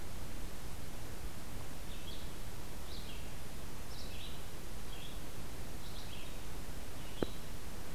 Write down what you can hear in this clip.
Red-eyed Vireo